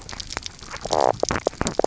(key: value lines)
label: biophony, knock croak
recorder: SoundTrap 300